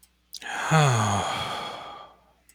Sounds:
Sigh